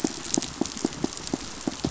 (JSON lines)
{"label": "biophony, pulse", "recorder": "SoundTrap 500"}